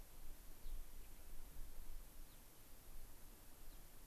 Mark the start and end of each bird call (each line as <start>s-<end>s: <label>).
0.6s-1.2s: Gray-crowned Rosy-Finch (Leucosticte tephrocotis)
2.2s-2.4s: Gray-crowned Rosy-Finch (Leucosticte tephrocotis)
3.6s-3.8s: Gray-crowned Rosy-Finch (Leucosticte tephrocotis)